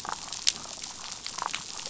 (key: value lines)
label: biophony, damselfish
recorder: SoundTrap 500